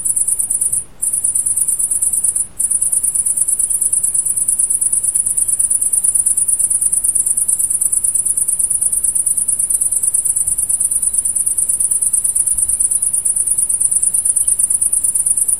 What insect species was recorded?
Tettigonia viridissima